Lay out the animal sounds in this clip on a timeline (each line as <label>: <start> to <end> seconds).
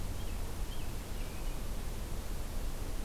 American Robin (Turdus migratorius): 0.0 to 1.5 seconds